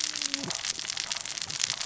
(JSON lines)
{"label": "biophony, cascading saw", "recorder": "SoundTrap 600 or HydroMoth"}